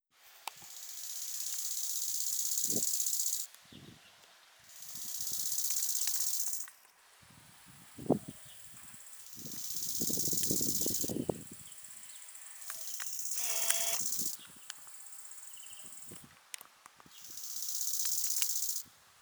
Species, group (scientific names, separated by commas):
Chorthippus biguttulus, Orthoptera